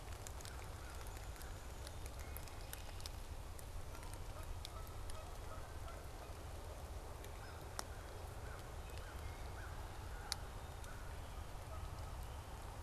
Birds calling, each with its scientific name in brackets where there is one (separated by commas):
Canada Goose (Branta canadensis), Downy Woodpecker (Dryobates pubescens), American Crow (Corvus brachyrhynchos)